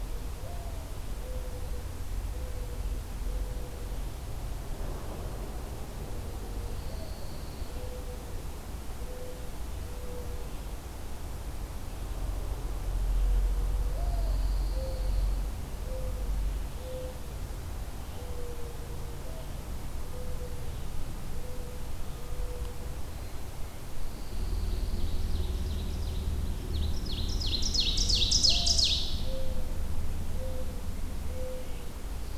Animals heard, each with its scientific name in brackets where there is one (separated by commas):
Ovenbird (Seiurus aurocapilla), Pine Warbler (Setophaga pinus), Mourning Dove (Zenaida macroura)